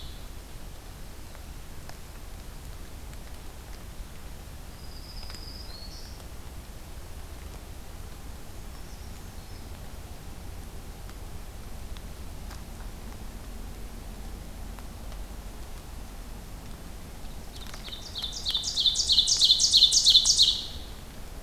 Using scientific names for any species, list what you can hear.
Setophaga virens, Certhia americana, Seiurus aurocapilla